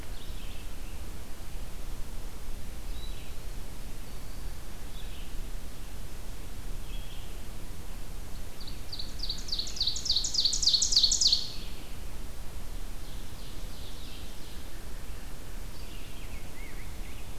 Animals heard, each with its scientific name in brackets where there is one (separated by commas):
Red-eyed Vireo (Vireo olivaceus), Ovenbird (Seiurus aurocapilla), American Robin (Turdus migratorius)